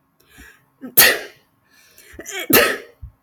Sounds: Sneeze